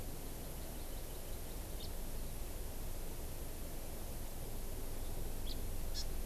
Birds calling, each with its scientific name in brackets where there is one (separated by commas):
House Finch (Haemorhous mexicanus), Hawaii Amakihi (Chlorodrepanis virens)